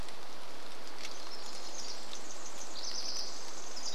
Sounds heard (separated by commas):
Pacific Wren song, rain